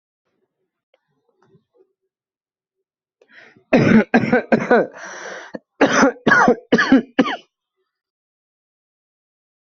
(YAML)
expert_labels:
- quality: ok
  cough_type: wet
  dyspnea: false
  wheezing: false
  stridor: true
  choking: false
  congestion: false
  nothing: true
  diagnosis: lower respiratory tract infection
  severity: mild
age: 30
gender: male
respiratory_condition: false
fever_muscle_pain: false
status: healthy